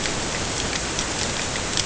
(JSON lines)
{"label": "ambient", "recorder": "HydroMoth"}